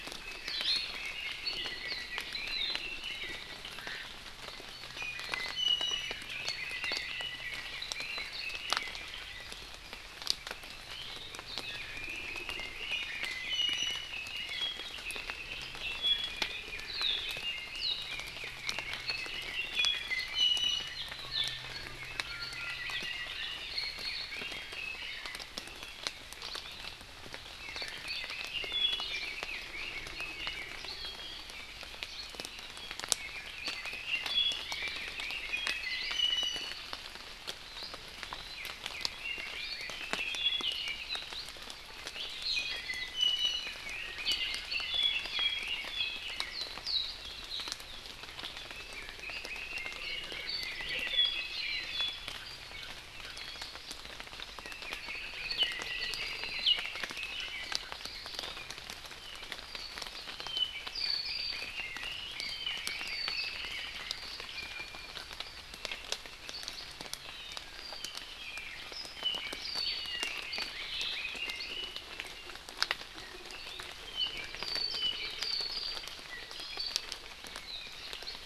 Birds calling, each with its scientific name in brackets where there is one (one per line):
Apapane (Himatione sanguinea)
Iiwi (Drepanis coccinea)
Red-billed Leiothrix (Leiothrix lutea)